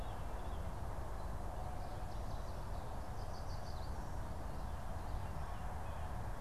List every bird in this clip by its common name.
Yellow Warbler